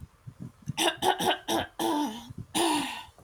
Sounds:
Throat clearing